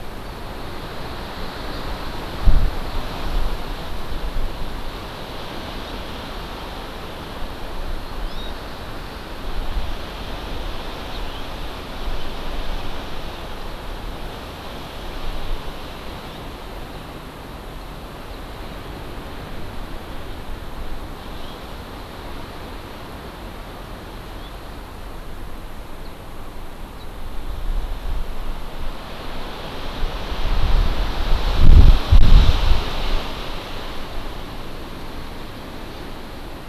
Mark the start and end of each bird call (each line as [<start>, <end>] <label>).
[8.00, 8.50] Hawaii Amakihi (Chlorodrepanis virens)
[11.10, 11.40] House Finch (Haemorhous mexicanus)
[21.20, 21.60] House Finch (Haemorhous mexicanus)